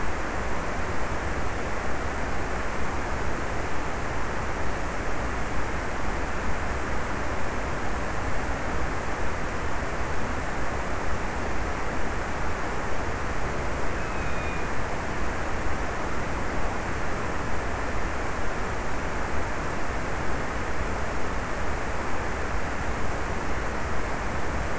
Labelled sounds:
13.6	15.0	killer whale, offshore, 2.1 to 2.8 kHz

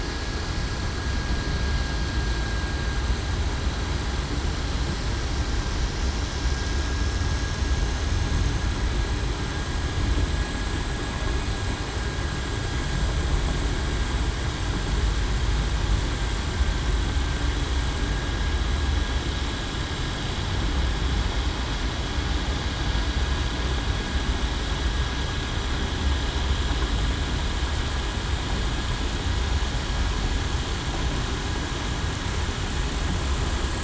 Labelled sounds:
17.9	18.3	vessel noise, 1.6 to 1.7 kHz

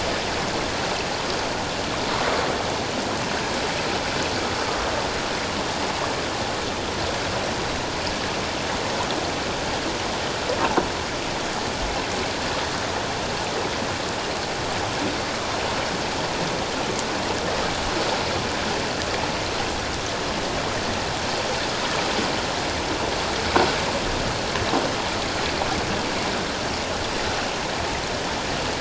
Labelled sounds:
10.6	10.9	croaking sound likely from a nearby submerged object, 0.78 to 1.0 kHz

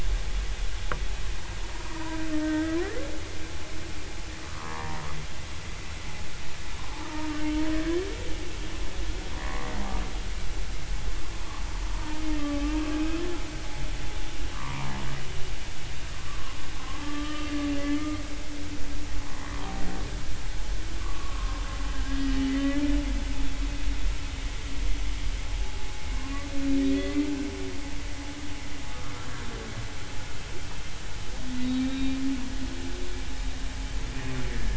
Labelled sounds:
1.9	2.8	humpback whale, 0.90 to 2.0 kHz
4.5	5.0	humpback whale, 0.90 to 1.3 kHz
7.0	8.1	humpback whale, 1.1 to 1.8 kHz
9.4	9.7	humpback whale, 1.0 to 1.2 kHz
11.9	13.2	humpback whale, 0.86 to 2.8 kHz
14.5	14.9	humpback whale, 0.90 to 1.2 kHz
16.2	17.5	humpback whale, 0.99 to 1.3 kHz
19.2	19.4	humpback whale, 0.93 to 1.1 kHz
21.0	22.8	humpback whale, 0.99 to 3.0 kHz
26.9	27.3	humpback whale, 1.9 to 2.1 kHz
31.6	32.2	humpback whale, 2.3 to 3.9 kHz
34.5	34.7	humpback whale, 1.7 to 1.8 kHz

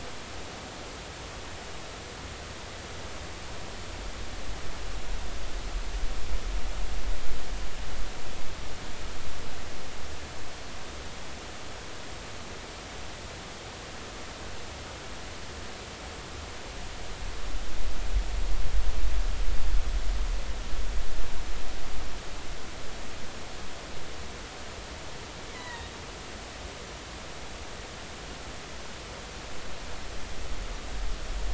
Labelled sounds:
25.5	25.9	killer whale, offshore, 0.90 to 4.1 kHz

